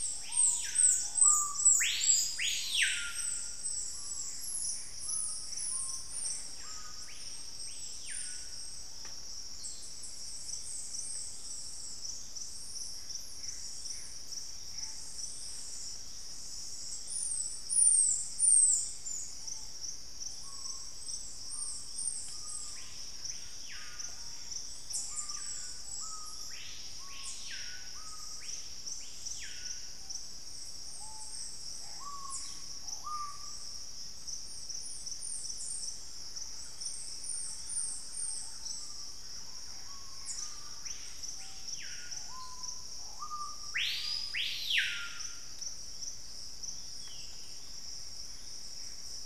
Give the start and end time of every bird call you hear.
[0.00, 9.27] Screaming Piha (Lipaugus vociferans)
[4.07, 6.57] Gray Antbird (Cercomacra cinerascens)
[12.57, 15.37] Gray Antbird (Cercomacra cinerascens)
[19.27, 33.97] Screaming Piha (Lipaugus vociferans)
[31.07, 34.27] Gray Antbird (Cercomacra cinerascens)
[35.87, 39.17] Thrush-like Wren (Campylorhynchus turdinus)
[38.97, 49.25] Screaming Piha (Lipaugus vociferans)
[40.87, 41.67] Collared Trogon (Trogon collaris)
[48.17, 49.25] Gray Antbird (Cercomacra cinerascens)

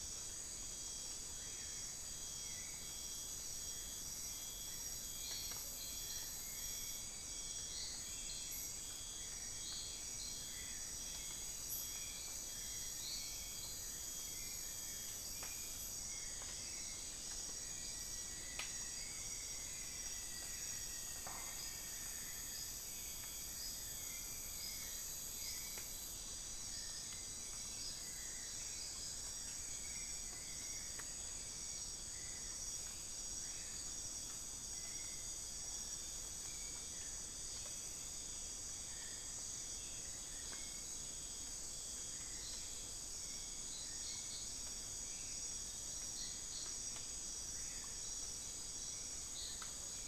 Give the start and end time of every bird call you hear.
[0.00, 47.28] Hauxwell's Thrush (Turdus hauxwelli)
[0.00, 50.08] Black-billed Thrush (Turdus ignobilis)
[17.28, 22.18] Rufous-fronted Antthrush (Formicarius rufifrons)

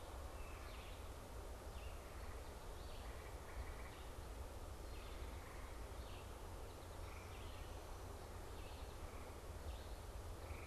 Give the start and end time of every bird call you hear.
[0.00, 10.66] Red-eyed Vireo (Vireo olivaceus)

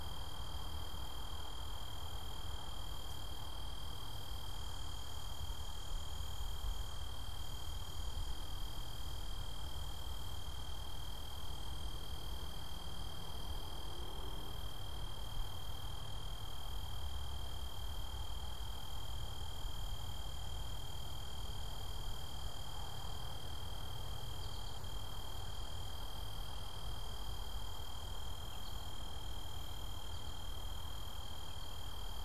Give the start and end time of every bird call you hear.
[24.17, 24.97] American Goldfinch (Spinus tristis)
[28.37, 32.17] American Goldfinch (Spinus tristis)

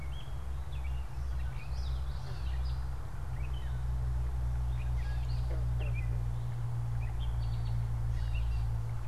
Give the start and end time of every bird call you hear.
[0.00, 9.08] Gray Catbird (Dumetella carolinensis)
[1.42, 2.81] Common Yellowthroat (Geothlypis trichas)
[7.21, 8.02] American Goldfinch (Spinus tristis)

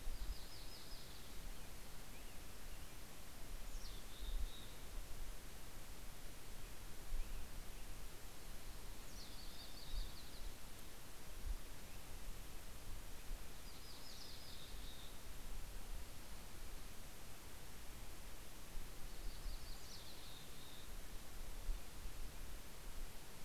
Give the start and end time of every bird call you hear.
[0.00, 1.50] Yellow-rumped Warbler (Setophaga coronata)
[1.10, 8.60] American Robin (Turdus migratorius)
[3.40, 4.90] Mountain Chickadee (Poecile gambeli)
[8.60, 10.10] Mountain Chickadee (Poecile gambeli)
[8.70, 11.40] Yellow-rumped Warbler (Setophaga coronata)
[13.40, 15.30] Yellow-rumped Warbler (Setophaga coronata)
[14.00, 15.30] Mountain Chickadee (Poecile gambeli)
[18.60, 20.70] Yellow-rumped Warbler (Setophaga coronata)
[19.70, 21.20] Mountain Chickadee (Poecile gambeli)

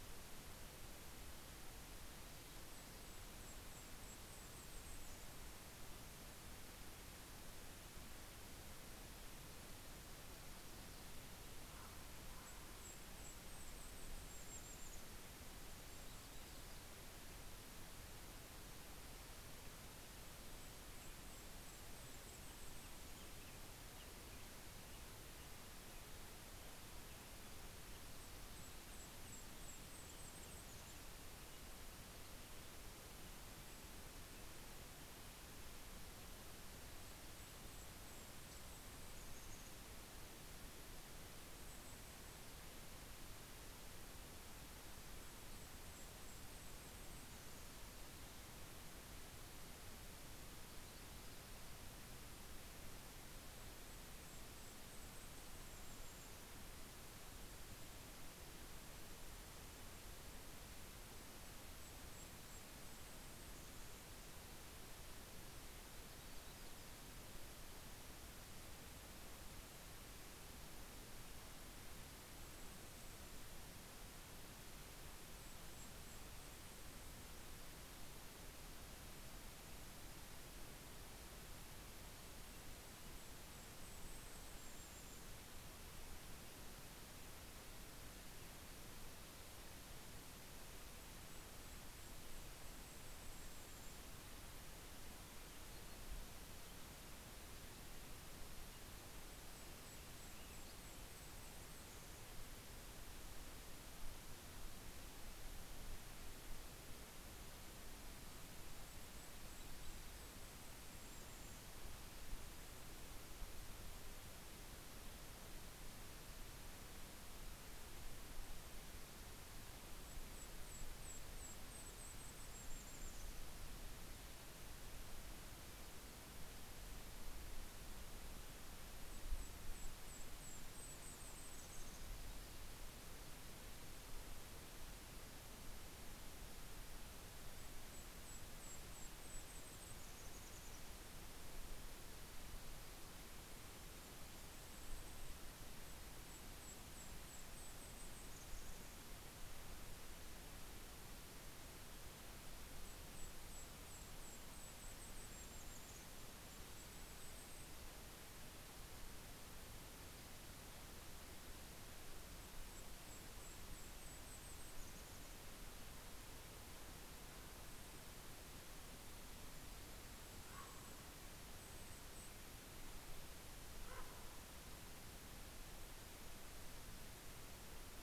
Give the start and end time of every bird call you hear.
[2.20, 5.60] Golden-crowned Kinglet (Regulus satrapa)
[10.70, 14.30] Common Raven (Corvus corax)
[12.10, 16.70] Golden-crowned Kinglet (Regulus satrapa)
[15.70, 17.40] Yellow-rumped Warbler (Setophaga coronata)
[19.80, 23.60] Golden-crowned Kinglet (Regulus satrapa)
[21.70, 36.80] American Robin (Turdus migratorius)
[27.10, 31.80] Golden-crowned Kinglet (Regulus satrapa)
[36.60, 39.90] Golden-crowned Kinglet (Regulus satrapa)
[40.90, 42.60] Golden-crowned Kinglet (Regulus satrapa)
[44.20, 48.30] Golden-crowned Kinglet (Regulus satrapa)
[53.10, 57.10] Golden-crowned Kinglet (Regulus satrapa)
[59.10, 64.50] Golden-crowned Kinglet (Regulus satrapa)
[71.70, 77.80] Golden-crowned Kinglet (Regulus satrapa)
[81.50, 85.80] Golden-crowned Kinglet (Regulus satrapa)
[90.20, 94.50] Golden-crowned Kinglet (Regulus satrapa)
[98.50, 103.20] Golden-crowned Kinglet (Regulus satrapa)
[107.30, 112.50] Golden-crowned Kinglet (Regulus satrapa)
[119.80, 123.30] Golden-crowned Kinglet (Regulus satrapa)
[128.00, 132.60] Golden-crowned Kinglet (Regulus satrapa)
[136.90, 141.60] Golden-crowned Kinglet (Regulus satrapa)
[143.50, 149.50] Golden-crowned Kinglet (Regulus satrapa)
[152.30, 158.20] Golden-crowned Kinglet (Regulus satrapa)
[161.20, 166.00] Golden-crowned Kinglet (Regulus satrapa)
[167.90, 172.70] Golden-crowned Kinglet (Regulus satrapa)
[169.70, 171.50] Common Raven (Corvus corax)
[173.00, 174.80] Common Raven (Corvus corax)

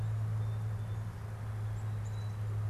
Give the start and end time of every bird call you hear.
[0.00, 2.60] Song Sparrow (Melospiza melodia)
[1.70, 2.30] Black-capped Chickadee (Poecile atricapillus)

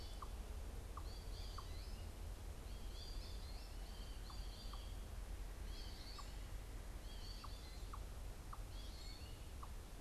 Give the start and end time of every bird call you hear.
[0.00, 10.01] American Goldfinch (Spinus tristis)

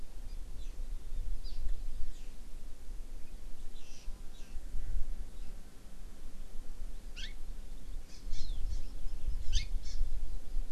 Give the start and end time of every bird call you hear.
[0.30, 0.70] Hawaii Amakihi (Chlorodrepanis virens)
[1.40, 1.60] Hawaii Amakihi (Chlorodrepanis virens)
[3.70, 4.60] Hawaii Amakihi (Chlorodrepanis virens)
[7.20, 7.30] Hawaii Amakihi (Chlorodrepanis virens)
[8.10, 10.00] Hawaii Amakihi (Chlorodrepanis virens)

